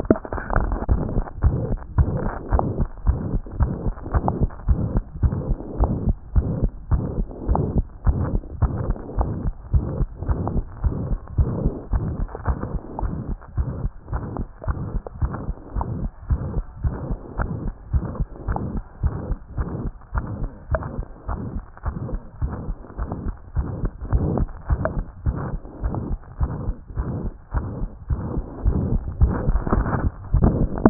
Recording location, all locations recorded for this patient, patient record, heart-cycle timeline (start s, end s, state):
mitral valve (MV)
aortic valve (AV)+pulmonary valve (PV)+tricuspid valve (TV)+mitral valve (MV)
#Age: Child
#Sex: Male
#Height: 92.0 cm
#Weight: 10.9 kg
#Pregnancy status: False
#Murmur: Present
#Murmur locations: aortic valve (AV)+mitral valve (MV)+pulmonary valve (PV)+tricuspid valve (TV)
#Most audible location: tricuspid valve (TV)
#Systolic murmur timing: Holosystolic
#Systolic murmur shape: Diamond
#Systolic murmur grading: III/VI or higher
#Systolic murmur pitch: High
#Systolic murmur quality: Harsh
#Diastolic murmur timing: nan
#Diastolic murmur shape: nan
#Diastolic murmur grading: nan
#Diastolic murmur pitch: nan
#Diastolic murmur quality: nan
#Outcome: Abnormal
#Campaign: 2014 screening campaign
0.00	1.44	unannotated
1.44	1.55	S1
1.55	1.70	systole
1.70	1.78	S2
1.78	1.98	diastole
1.98	2.08	S1
2.08	2.24	systole
2.24	2.32	S2
2.32	2.52	diastole
2.52	2.62	S1
2.62	2.78	systole
2.78	2.87	S2
2.87	3.06	diastole
3.06	3.16	S1
3.16	3.32	systole
3.32	3.41	S2
3.41	3.60	diastole
3.60	3.70	S1
3.70	3.86	systole
3.86	3.94	S2
3.94	4.14	diastole
4.14	4.24	S1
4.24	4.41	systole
4.41	4.50	S2
4.50	4.68	diastole
4.68	4.78	S1
4.78	4.96	systole
4.96	5.04	S2
5.04	5.22	diastole
5.22	5.32	S1
5.32	5.48	systole
5.48	5.56	S2
5.56	5.80	diastole
5.80	5.90	S1
5.90	6.06	systole
6.06	6.15	S2
6.15	6.36	diastole
6.36	6.46	S1
6.46	6.61	systole
6.61	6.70	S2
6.70	6.92	diastole
6.92	7.02	S1
7.02	7.18	systole
7.18	7.26	S2
7.26	7.48	diastole
7.48	7.58	S1
7.58	7.76	systole
7.76	7.84	S2
7.84	8.06	diastole
8.06	8.18	S1
8.18	8.33	systole
8.33	8.42	S2
8.42	8.62	diastole
8.62	8.73	S1
8.73	8.88	systole
8.88	8.96	S2
8.96	9.18	diastole
9.18	9.28	S1
9.28	9.44	systole
9.44	9.52	S2
9.52	9.72	diastole
9.72	30.90	unannotated